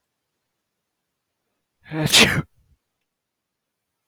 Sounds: Sneeze